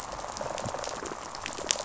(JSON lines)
{"label": "biophony, rattle response", "recorder": "SoundTrap 500"}